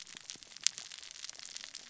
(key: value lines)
label: biophony, cascading saw
recorder: SoundTrap 600 or HydroMoth